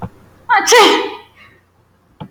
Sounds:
Sneeze